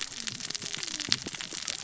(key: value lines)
label: biophony, cascading saw
recorder: SoundTrap 600 or HydroMoth